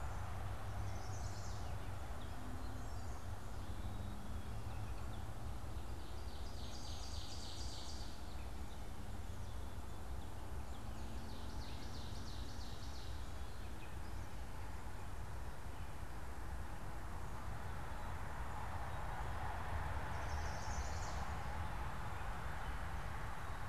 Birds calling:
Ovenbird (Seiurus aurocapilla), Chestnut-sided Warbler (Setophaga pensylvanica)

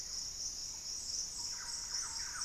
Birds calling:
Thrush-like Wren (Campylorhynchus turdinus), Hauxwell's Thrush (Turdus hauxwelli)

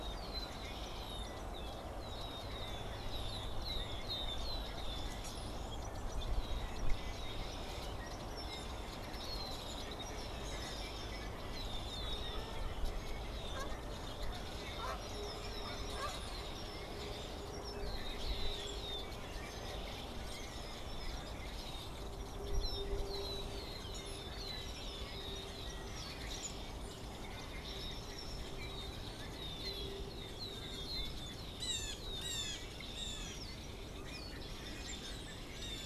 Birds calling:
Blue Jay (Cyanocitta cristata), unidentified bird

